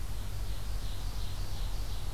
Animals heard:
Ovenbird (Seiurus aurocapilla)

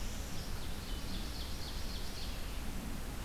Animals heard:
Red-eyed Vireo (Vireo olivaceus), Northern Parula (Setophaga americana), Ovenbird (Seiurus aurocapilla)

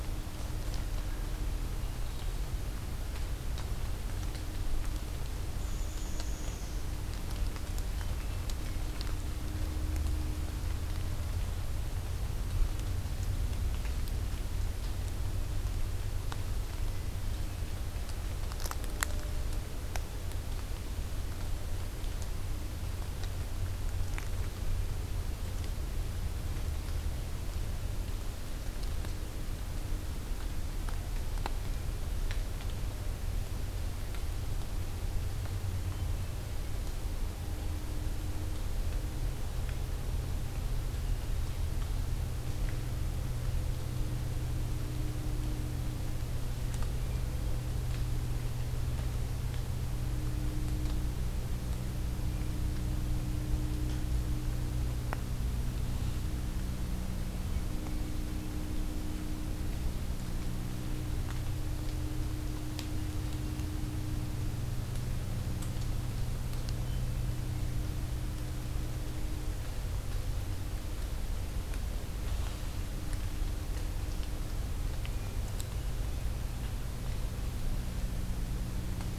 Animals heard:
Black-capped Chickadee (Poecile atricapillus), Hermit Thrush (Catharus guttatus)

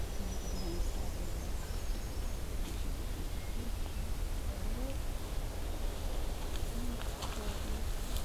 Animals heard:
Yellow-rumped Warbler (Setophaga coronata), Black-throated Green Warbler (Setophaga virens)

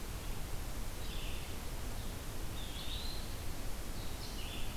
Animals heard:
Eastern Wood-Pewee (Contopus virens), Red-eyed Vireo (Vireo olivaceus)

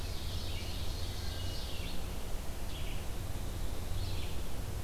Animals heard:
Ovenbird (Seiurus aurocapilla), Red-eyed Vireo (Vireo olivaceus)

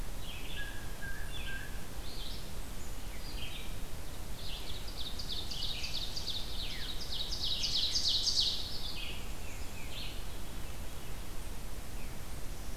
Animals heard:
Red-eyed Vireo (Vireo olivaceus), Tufted Titmouse (Baeolophus bicolor), Blue Jay (Cyanocitta cristata), Ovenbird (Seiurus aurocapilla), Veery (Catharus fuscescens)

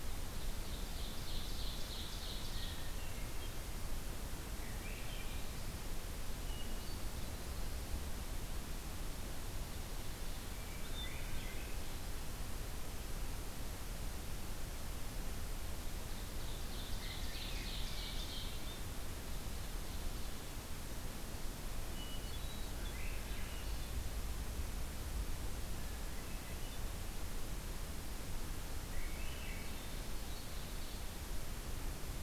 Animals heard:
Swainson's Thrush (Catharus ustulatus), Ovenbird (Seiurus aurocapilla), Hermit Thrush (Catharus guttatus)

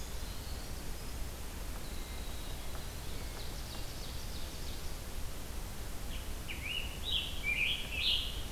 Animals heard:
Ovenbird (Seiurus aurocapilla), Scarlet Tanager (Piranga olivacea), Winter Wren (Troglodytes hiemalis)

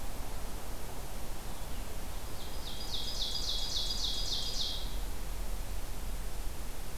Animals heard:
Ovenbird (Seiurus aurocapilla)

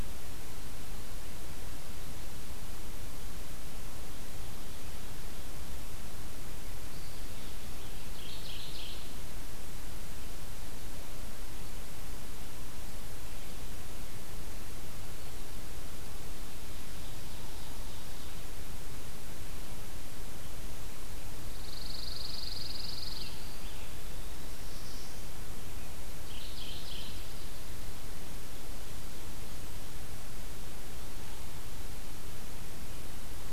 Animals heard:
Scarlet Tanager (Piranga olivacea), Pine Warbler (Setophaga pinus), Mourning Warbler (Geothlypis philadelphia), Ovenbird (Seiurus aurocapilla), Black-throated Blue Warbler (Setophaga caerulescens)

